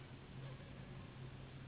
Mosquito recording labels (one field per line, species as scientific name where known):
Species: Anopheles gambiae s.s.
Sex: female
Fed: unfed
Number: one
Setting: insect culture